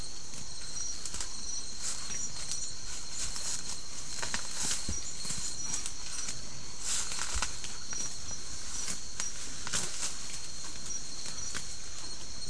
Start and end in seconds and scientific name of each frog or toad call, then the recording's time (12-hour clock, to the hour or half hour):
none
11pm